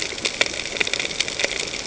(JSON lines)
{"label": "ambient", "recorder": "HydroMoth"}